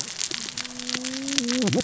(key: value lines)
label: biophony, cascading saw
recorder: SoundTrap 600 or HydroMoth